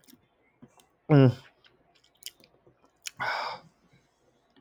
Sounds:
Throat clearing